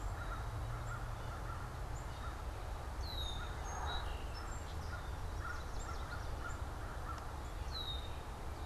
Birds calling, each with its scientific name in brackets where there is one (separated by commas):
Song Sparrow (Melospiza melodia), Yellow Warbler (Setophaga petechia), Black-capped Chickadee (Poecile atricapillus), Red-winged Blackbird (Agelaius phoeniceus), American Crow (Corvus brachyrhynchos)